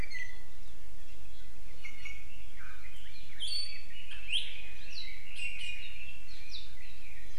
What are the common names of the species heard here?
Iiwi, Red-billed Leiothrix